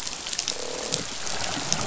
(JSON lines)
{"label": "biophony, croak", "recorder": "SoundTrap 500"}